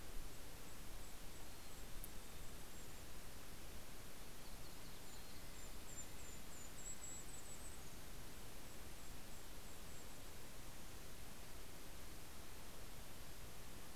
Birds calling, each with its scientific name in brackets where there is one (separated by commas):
Red-breasted Nuthatch (Sitta canadensis), Golden-crowned Kinglet (Regulus satrapa), Yellow-rumped Warbler (Setophaga coronata), Mountain Chickadee (Poecile gambeli)